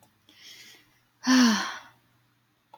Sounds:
Sigh